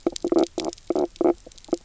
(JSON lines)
{"label": "biophony, knock croak", "recorder": "SoundTrap 300"}